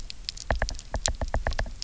{"label": "biophony, knock", "recorder": "SoundTrap 300"}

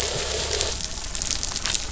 {"label": "biophony, croak", "recorder": "SoundTrap 500"}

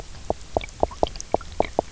{"label": "biophony, knock", "recorder": "SoundTrap 300"}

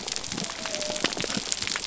{"label": "biophony", "recorder": "SoundTrap 300"}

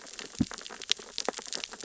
{"label": "biophony, sea urchins (Echinidae)", "recorder": "SoundTrap 600 or HydroMoth"}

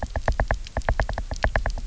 {"label": "biophony, knock", "recorder": "SoundTrap 300"}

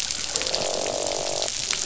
{"label": "biophony, croak", "recorder": "SoundTrap 500"}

